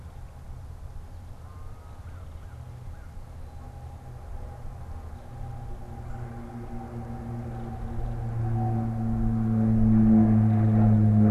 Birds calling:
American Crow (Corvus brachyrhynchos)
Red-bellied Woodpecker (Melanerpes carolinus)

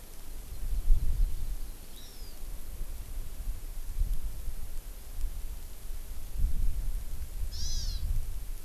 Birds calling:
Hawaii Amakihi (Chlorodrepanis virens)

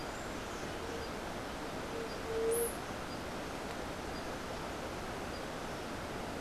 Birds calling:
White-tipped Dove (Leptotila verreauxi)

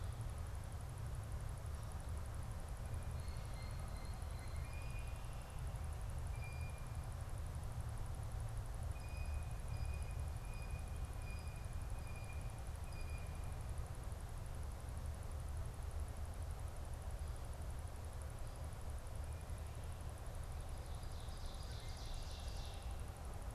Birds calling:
Ovenbird (Seiurus aurocapilla)
Blue Jay (Cyanocitta cristata)

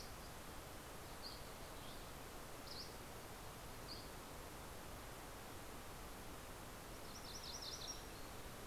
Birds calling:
MacGillivray's Warbler (Geothlypis tolmiei)
Dusky Flycatcher (Empidonax oberholseri)

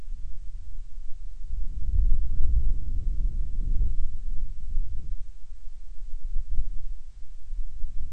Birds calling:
Band-rumped Storm-Petrel (Hydrobates castro)

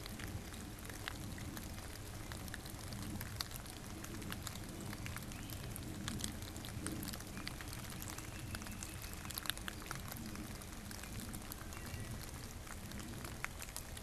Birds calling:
Great Crested Flycatcher (Myiarchus crinitus)
Wood Thrush (Hylocichla mustelina)

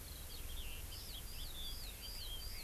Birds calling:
Red-billed Leiothrix (Leiothrix lutea)
Eurasian Skylark (Alauda arvensis)

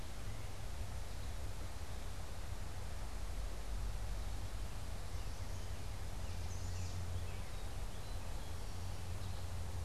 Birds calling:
Eastern Towhee (Pipilo erythrophthalmus)
Northern Cardinal (Cardinalis cardinalis)
Chestnut-sided Warbler (Setophaga pensylvanica)

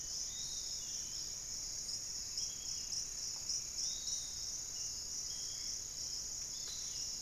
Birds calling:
Piratic Flycatcher (Legatus leucophaius)
Spot-winged Antshrike (Pygiptila stellaris)
Long-winged Antwren (Myrmotherula longipennis)

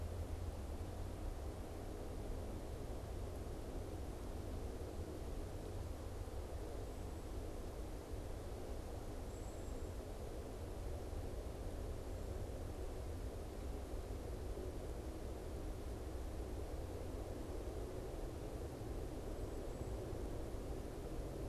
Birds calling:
Cedar Waxwing (Bombycilla cedrorum)

